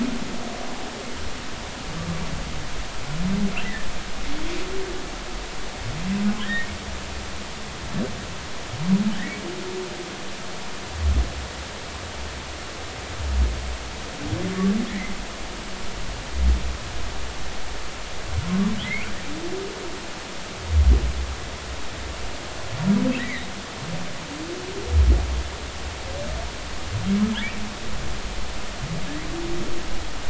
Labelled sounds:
3.6	3.9	humpback whale, 1.7 to 2.0 kHz
6.4	6.7	humpback whale, 1.5 to 2.0 kHz
14.9	15.1	humpback whale, 1.7 to 2.3 kHz
18.8	19.1	humpback whale, 1.9 to 2.8 kHz
23.2	23.5	humpback whale, 1.8 to 2.4 kHz

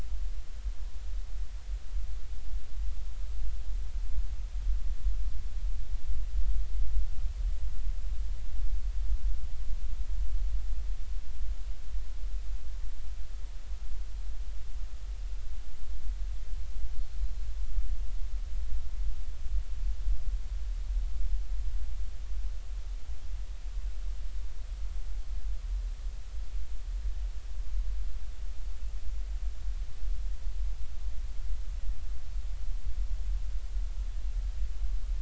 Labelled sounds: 17.2	17.5	Pacific white-sided dolphin, 4.0 to 4.3 kHz

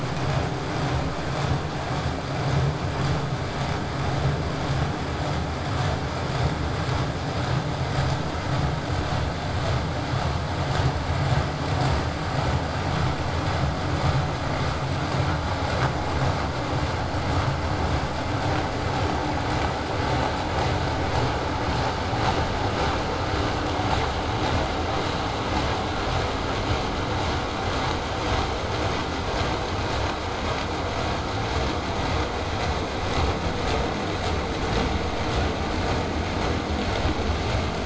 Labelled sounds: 22.9	27.9	vessel noise, 0 to 8.0 kHz

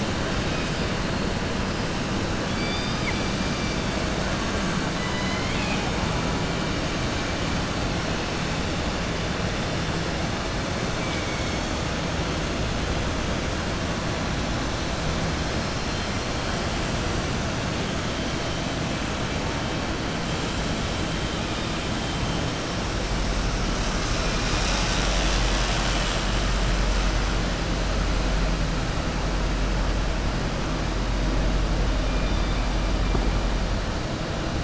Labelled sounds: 2.4	3.9	killer whale, southern resident, 1.3 to 6.0 kHz
4.9	5.9	killer whale, southern resident, 1.0 to 5.1 kHz
11.0	11.6	killer whale, southern resident, 2.2 to 3.2 kHz

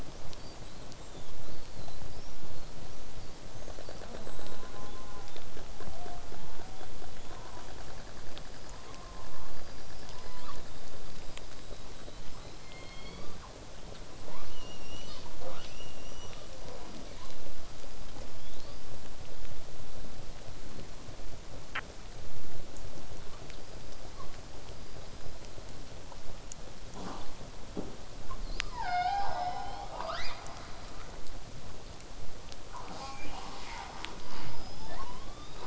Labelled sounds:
0.4	5.0	killer whale, southern resident, whistle, 3.1 to 8.0 kHz
4.3	5.4	killer whale, southern resident, J pod, call S04, 0.58 to 1.8 kHz
5.3	5.5	killer whale, southern resident, whistle, 3.4 to 3.9 kHz
7.1	7.4	killer whale, southern resident, whistle, 2.9 to 7.1 kHz
10.7	12.5	killer whale, southern resident, whistle, 3.4 to 8.0 kHz
14.2	16.5	killer whale, southern resident, 0.25 to 8.0 kHz
18.4	18.8	killer whale, southern resident, whistle, 3.0 to 5.0 kHz
19.1	23.2	vessel noise, 0 to 8.0 kHz
23.4	24.3	killer whale, southern resident, L pod, call S19, 0.32 to 5.2 kHz
29.9	30.7	killer whale, southern resident, 0.40 to 8.0 kHz
34.3	35.6	killer whale, southern resident, 0.35 to 8.0 kHz

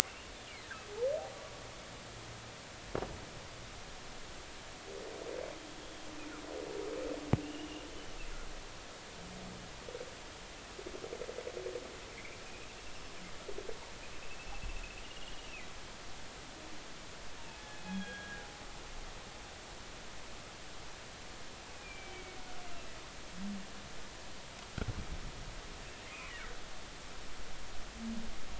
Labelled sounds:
7.4	7.7	humpback whale, 2.6 to 3.0 kHz
12.1	12.4	humpback whale, 2.0 to 2.5 kHz
15.2	15.5	humpback whale, 2.8 to 3.0 kHz
17.4	18.4	humpback whale, 1.6 to 3.4 kHz
21.7	22.4	humpback whale, 2.2 to 2.6 kHz
26.1	26.3	humpback whale, 2.0 to 2.6 kHz

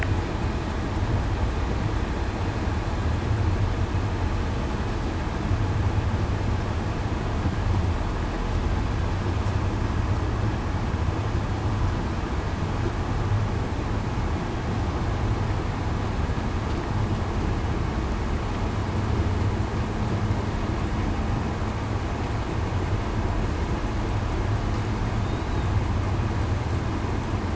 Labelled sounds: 25.2	25.6	killer whale, southern resident, 3.5 to 3.9 kHz

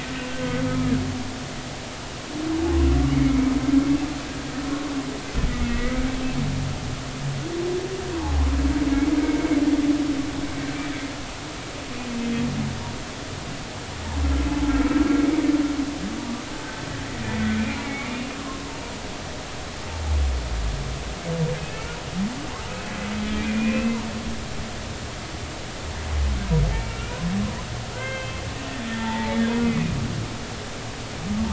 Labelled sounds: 3.1	3.5	humpback whale, 2.1 to 2.3 kHz
5.6	6.0	humpback whale, 1.9 to 2.3 kHz
8.1	8.4	humpback whale, 0.80 to 1.1 kHz
17.3	18.1	humpback whale, 1.8 to 2.4 kHz
18.4	18.8	humpback whale, 0.86 to 1.2 kHz
21.6	21.9	humpback whale, 2.5 to 2.8 kHz
23.2	24.0	humpback whale, 2.2 to 2.8 kHz
26.7	28.4	humpback whale, 1.2 to 3.2 kHz
28.9	29.4	humpback whale, 0.83 to 2.0 kHz
29.6	29.9	humpback whale, 1.9 to 2.1 kHz

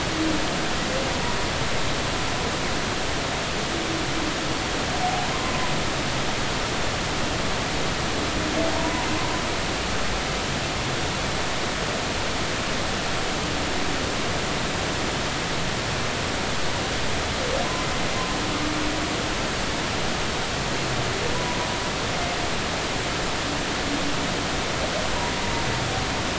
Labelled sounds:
8.7	9.1	humpback whale, 0.90 to 1.1 kHz
21.3	21.6	humpback whale, 0.93 to 1.0 kHz

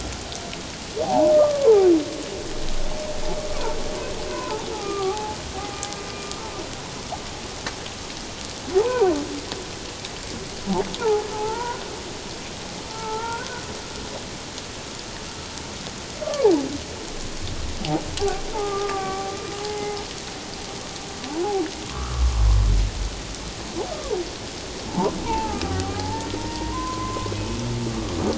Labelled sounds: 1.0	1.9	humpback whale, 0.78 to 1.2 kHz
3.5	3.8	humpback whale, 0.88 to 1.2 kHz
4.3	5.4	humpback whale, 0.78 to 1.6 kHz
8.7	9.1	humpback whale, 0.78 to 1.6 kHz
11.0	11.8	humpback whale, 0.78 to 1.5 kHz
12.9	13.6	humpback whale, 0.81 to 1.6 kHz
18.5	20.0	humpback whale, 0.78 to 2.1 kHz
21.9	22.4	humpback whale, 0.97 to 1.4 kHz
24.9	27.3	humpback whale, 0.78 to 1.9 kHz
27.9	28.2	humpback whale, 1.1 to 1.2 kHz

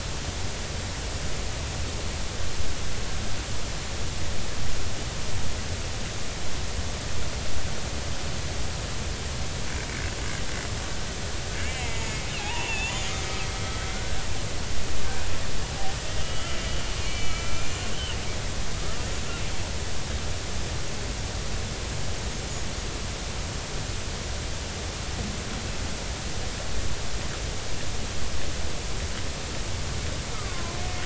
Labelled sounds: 11.6	13.1	killer whale, Bigg's (transient), 0.80 to 3.6 kHz
13.4	14.3	killer whale, Bigg's (transient), 1.3 to 3.4 kHz
16.1	17.7	killer whale, Bigg's (transient), 1.3 to 3.1 kHz
30.3	30.8	killer whale, Bigg's (transient), 0.96 to 1.4 kHz

